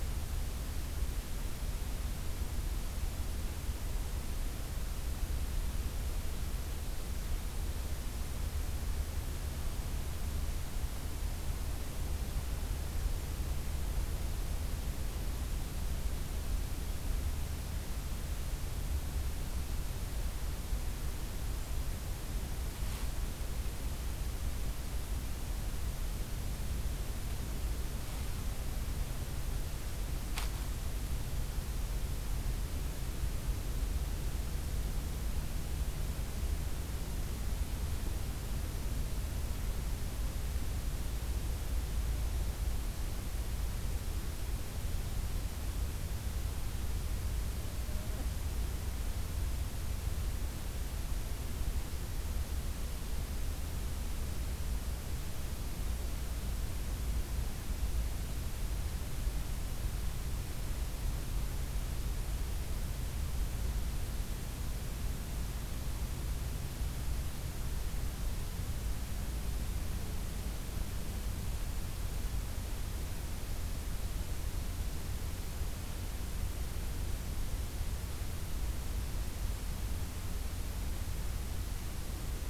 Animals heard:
forest ambience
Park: Acadia National Park